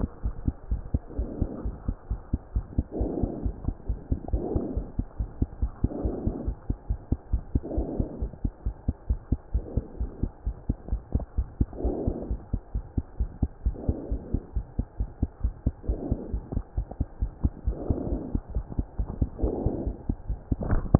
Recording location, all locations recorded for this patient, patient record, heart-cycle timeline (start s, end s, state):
pulmonary valve (PV)
aortic valve (AV)+pulmonary valve (PV)+tricuspid valve (TV)+mitral valve (MV)
#Age: Child
#Sex: Male
#Height: 92.0 cm
#Weight: 15.6 kg
#Pregnancy status: False
#Murmur: Absent
#Murmur locations: nan
#Most audible location: nan
#Systolic murmur timing: nan
#Systolic murmur shape: nan
#Systolic murmur grading: nan
#Systolic murmur pitch: nan
#Systolic murmur quality: nan
#Diastolic murmur timing: nan
#Diastolic murmur shape: nan
#Diastolic murmur grading: nan
#Diastolic murmur pitch: nan
#Diastolic murmur quality: nan
#Outcome: Abnormal
#Campaign: 2015 screening campaign
0.00	0.52	unannotated
0.52	0.70	diastole
0.70	0.80	S1
0.80	0.94	systole
0.94	1.02	S2
1.02	1.18	diastole
1.18	1.28	S1
1.28	1.42	systole
1.42	1.50	S2
1.50	1.66	diastole
1.66	1.76	S1
1.76	1.88	systole
1.88	1.96	S2
1.96	2.10	diastole
2.10	2.20	S1
2.20	2.31	systole
2.31	2.38	S2
2.38	2.55	diastole
2.55	2.65	S1
2.65	2.78	systole
2.78	2.84	S2
2.84	3.00	diastole
3.00	3.07	S1
3.07	3.22	systole
3.22	3.30	S2
3.30	3.44	diastole
3.44	3.56	S1
3.56	3.68	systole
3.68	3.76	S2
3.76	3.90	diastole
3.90	3.98	S1
3.98	4.10	systole
4.10	4.20	S2
4.20	4.32	diastole
4.32	4.44	S1
4.44	4.54	systole
4.54	4.68	S2
4.68	4.76	diastole
4.76	4.84	S1
4.84	4.97	systole
4.97	5.04	S2
5.04	5.20	diastole
5.20	5.28	S1
5.28	5.42	systole
5.42	5.50	S2
5.50	5.62	diastole
5.62	5.72	S1
5.72	5.82	systole
5.82	5.90	S2
5.90	6.04	diastole
6.04	6.16	S1
6.16	6.25	systole
6.25	6.33	S2
6.33	6.45	diastole
6.45	6.55	S1
6.55	6.68	systole
6.68	6.76	S2
6.76	6.90	diastole
6.90	6.98	S1
6.98	7.10	systole
7.10	7.18	S2
7.18	7.34	diastole
7.34	7.44	S1
7.44	7.54	systole
7.54	7.62	S2
7.62	7.76	diastole
7.76	7.88	S1
7.88	7.98	systole
7.98	8.08	S2
8.08	8.22	diastole
8.22	8.32	S1
8.32	8.44	systole
8.44	8.52	S2
8.52	8.66	diastole
8.66	8.76	S1
8.76	8.88	systole
8.88	8.94	S2
8.94	9.10	diastole
9.10	9.20	S1
9.20	9.32	systole
9.32	9.38	S2
9.38	9.54	diastole
9.54	9.64	S1
9.64	9.76	systole
9.76	9.84	S2
9.84	10.00	diastole
10.00	10.12	S1
10.12	10.22	systole
10.22	10.32	S2
10.32	10.46	diastole
10.46	10.55	S1
10.55	10.69	systole
10.69	10.74	S2
10.74	10.92	diastole
10.92	11.02	S1
11.02	11.14	systole
11.14	11.24	S2
11.24	11.38	diastole
11.38	11.46	S1
11.46	11.58	systole
11.58	11.68	S2
11.68	11.82	diastole
11.82	11.96	S1
11.96	12.06	systole
12.06	12.16	S2
12.16	12.30	diastole
12.30	12.39	S1
12.39	12.53	systole
12.53	12.62	S2
12.62	12.74	diastole
12.74	12.84	S1
12.84	12.97	systole
12.97	13.04	S2
13.04	13.19	diastole
13.19	13.28	S1
13.28	13.41	systole
13.41	13.48	S2
13.48	13.66	diastole
13.66	13.73	S1
13.73	13.88	systole
13.88	13.96	S2
13.96	14.11	diastole
14.11	14.22	S1
14.22	14.33	systole
14.33	14.42	S2
14.42	14.56	diastole
14.56	14.66	S1
14.66	14.78	systole
14.78	14.86	S2
14.86	15.00	diastole
15.00	15.08	S1
15.08	15.22	systole
15.22	15.30	S2
15.30	15.44	diastole
15.44	15.54	S1
15.54	15.66	systole
15.66	15.74	S2
15.74	15.88	diastole
15.88	15.98	S1
15.98	16.10	systole
16.10	16.20	S2
16.20	16.34	diastole
16.34	16.44	S1
16.44	16.54	systole
16.54	16.64	S2
16.64	16.77	diastole
16.77	16.86	S1
16.86	16.99	systole
16.99	17.06	S2
17.06	17.22	diastole
17.22	17.32	S1
17.32	17.42	systole
17.42	17.54	S2
17.54	17.67	diastole
17.67	17.76	S1
17.76	17.89	systole
17.89	17.97	S2
17.97	18.10	diastole
18.10	18.22	S1
18.22	18.34	systole
18.34	18.42	S2
18.42	18.56	diastole
18.56	18.66	S1
18.66	18.78	systole
18.78	18.86	S2
18.86	19.00	diastole
19.00	19.08	S1
19.08	19.20	systole
19.20	19.29	S2
19.29	19.42	diastole
19.42	19.54	S1
19.54	19.64	systole
19.64	19.76	S2
19.76	19.86	diastole
19.86	20.99	unannotated